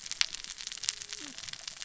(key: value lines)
label: biophony, cascading saw
recorder: SoundTrap 600 or HydroMoth